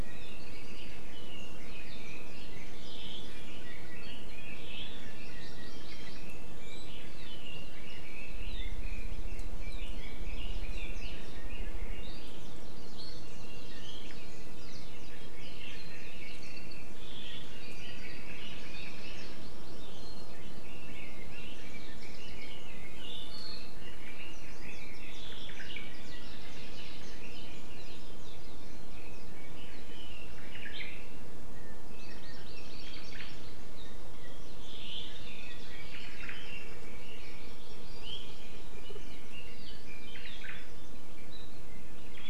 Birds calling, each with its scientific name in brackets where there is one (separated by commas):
Omao (Myadestes obscurus), Hawaii Amakihi (Chlorodrepanis virens), Apapane (Himatione sanguinea), Red-billed Leiothrix (Leiothrix lutea), Hawaii Creeper (Loxops mana)